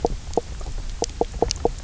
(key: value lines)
label: biophony, knock croak
recorder: SoundTrap 300